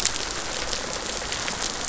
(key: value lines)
label: biophony, rattle response
recorder: SoundTrap 500